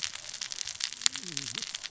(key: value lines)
label: biophony, cascading saw
recorder: SoundTrap 600 or HydroMoth